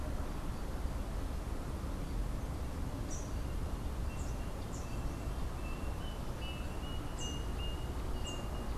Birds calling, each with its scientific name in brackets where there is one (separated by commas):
Rufous-capped Warbler (Basileuterus rufifrons), Melodious Blackbird (Dives dives)